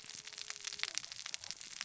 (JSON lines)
{"label": "biophony, cascading saw", "recorder": "SoundTrap 600 or HydroMoth"}